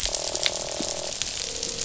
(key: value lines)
label: biophony, croak
recorder: SoundTrap 500